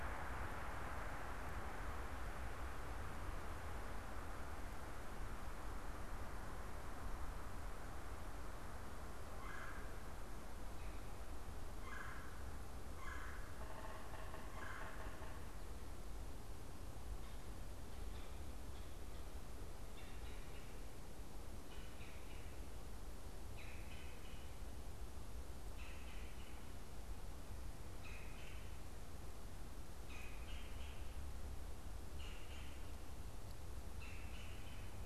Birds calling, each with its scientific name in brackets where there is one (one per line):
Red-bellied Woodpecker (Melanerpes carolinus)
Yellow-bellied Sapsucker (Sphyrapicus varius)